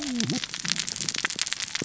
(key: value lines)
label: biophony, cascading saw
recorder: SoundTrap 600 or HydroMoth